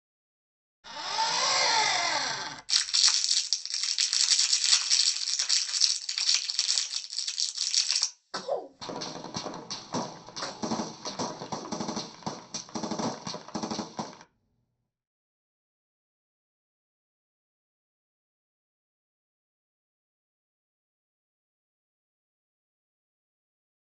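At 0.83 seconds, an engine can be heard. Then at 2.68 seconds, crumpling is heard. Next, at 8.3 seconds, someone sneezes. Over it, at 8.81 seconds, you can hear gunfire.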